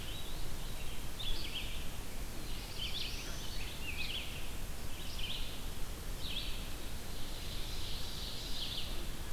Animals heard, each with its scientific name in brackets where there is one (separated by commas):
Red-eyed Vireo (Vireo olivaceus), Black-throated Blue Warbler (Setophaga caerulescens), Ovenbird (Seiurus aurocapilla)